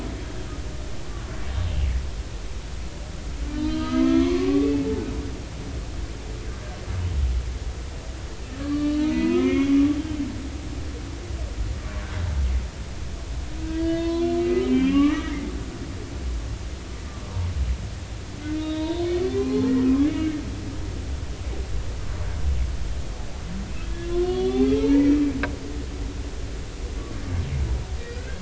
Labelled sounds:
3.5	5.1	humpback whale, 0.80 to 4.1 kHz
8.6	9.8	humpback whale, 0.86 to 3.4 kHz
13.7	15.5	humpback whale, 0.96 to 4.4 kHz
18.6	20.4	humpback whale, 0.80 to 4.4 kHz
23.9	25.2	humpback whale, 0.83 to 4.5 kHz
28.0	28.3	humpback whale, 1.4 to 2.0 kHz

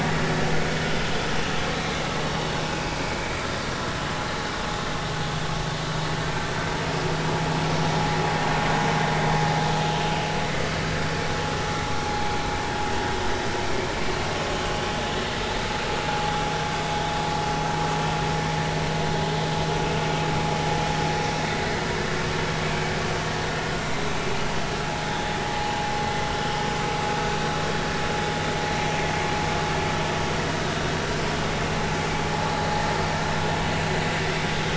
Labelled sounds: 2.7	2.9	vessel noise, 2.4 to 2.7 kHz

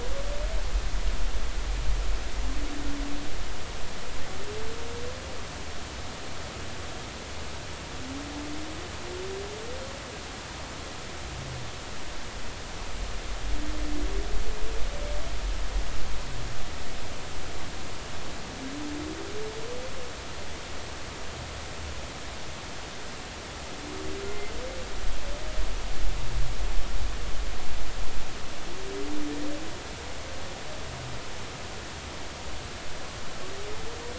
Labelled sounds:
24.2	24.5	humpback whale, 2.0 to 2.1 kHz

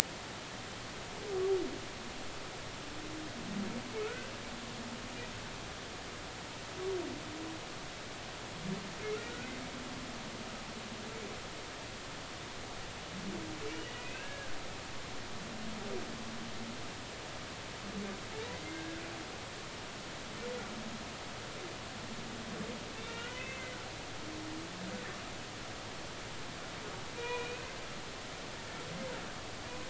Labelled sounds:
5.0	5.3	humpback whale, 1.2 to 1.6 kHz
13.7	14.5	humpback whale, 1.4 to 3.0 kHz
18.7	19.0	humpback whale, 1.4 to 1.7 kHz
22.9	23.7	humpback whale, 1.3 to 3.8 kHz
27.2	27.7	humpback whale, 0.90 to 2.6 kHz

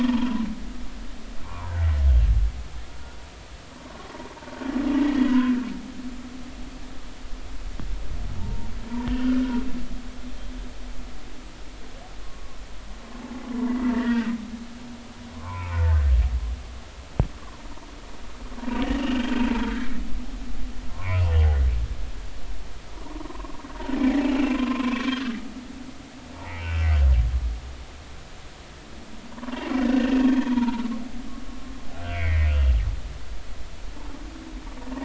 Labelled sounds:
1.4	1.7	humpback whale, 0.90 to 1.2 kHz
2.9	3.2	humpback whale, 1.4 to 1.5 kHz
5.0	5.6	humpback whale, 0.93 to 2.0 kHz
8.4	8.7	humpback whale, 0.86 to 0.99 kHz
9.0	9.4	humpback whale, 1.4 to 1.9 kHz
12.2	12.6	humpback whale, 1.0 to 1.2 kHz
13.6	14.3	humpback whale, 1.3 to 2.0 kHz
15.3	16.1	humpback whale, 0.83 to 2.7 kHz
17.4	17.6	humpback whale, 0.90 to 1.2 kHz
19.0	19.9	humpback whale, 1.3 to 3.1 kHz
20.9	21.2	humpback whale, 0.90 to 1.2 kHz
23.0	23.6	humpback whale, 0.90 to 1.3 kHz
24.5	25.4	humpback whale, 0.96 to 1.8 kHz
26.3	26.9	humpback whale, 0.83 to 2.9 kHz
29.6	30.9	humpback whale, 0.83 to 2.9 kHz
32.1	32.5	humpback whale, 1.8 to 2.5 kHz

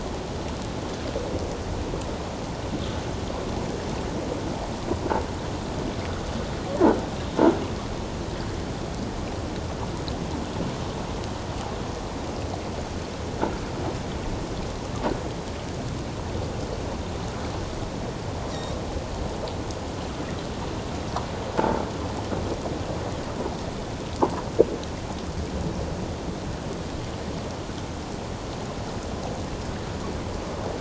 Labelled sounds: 18.5	18.8	Pacific white-sided dolphin, 5.5 to 5.8 kHz

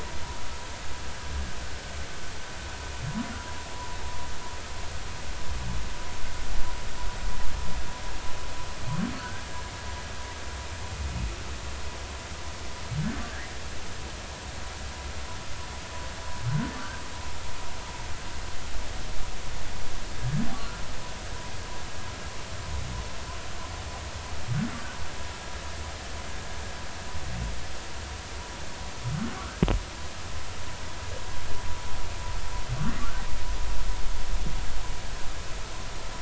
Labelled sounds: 9.2	9.4	humpback whale, 1.4 to 1.7 kHz

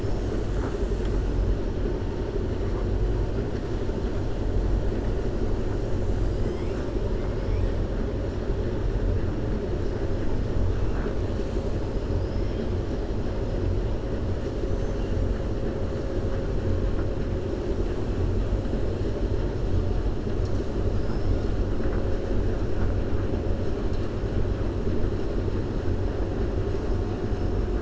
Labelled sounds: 14.6	15.0	killer whale, 5.6 to 7.2 kHz

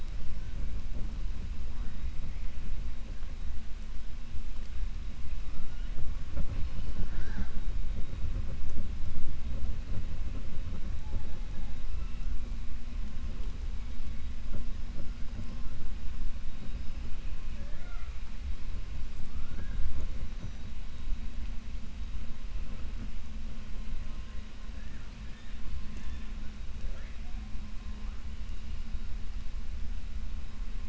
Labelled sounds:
17.5	18.2	killer whale, 0.54 to 2.6 kHz
25.8	26.3	killer whale, 1.0 to 4.2 kHz

